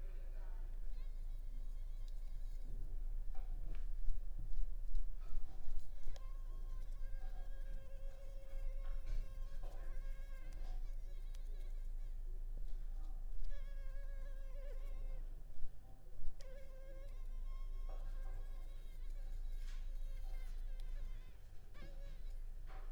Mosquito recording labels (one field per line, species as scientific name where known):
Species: Culex pipiens complex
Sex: female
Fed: unfed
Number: one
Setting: cup